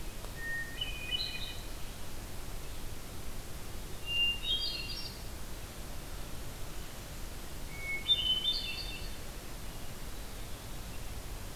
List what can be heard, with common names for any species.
Hermit Thrush